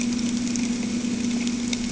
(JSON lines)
{"label": "anthrophony, boat engine", "recorder": "HydroMoth"}